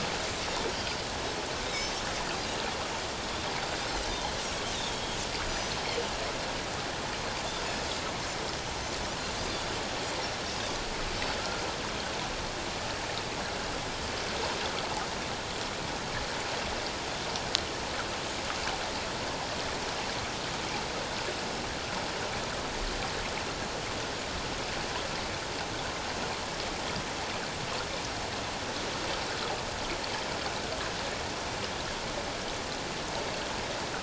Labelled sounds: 1.7	2.0	Pacific white-sided dolphin, 5.9 to 6.3 kHz
4.3	4.6	Pacific white-sided dolphin, 5.5 to 6.0 kHz
4.9	5.8	Pacific white-sided dolphin, 3.2 to 6.2 kHz
9.4	9.7	Pacific white-sided dolphin, 3.4 to 3.7 kHz

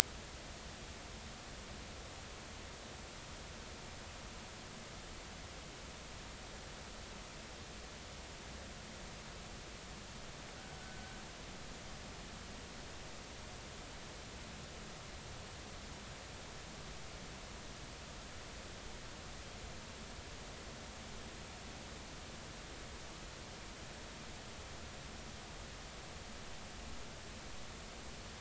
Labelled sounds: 10.8	11.1	killer whale, 1.4 to 1.6 kHz

